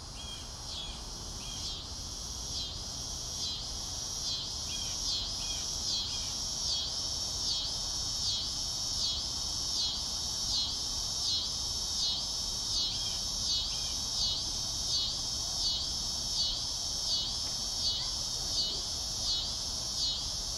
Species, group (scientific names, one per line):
Neotibicen pruinosus
Cicadidae